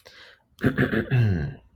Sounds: Throat clearing